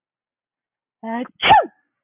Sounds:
Sneeze